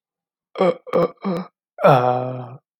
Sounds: Throat clearing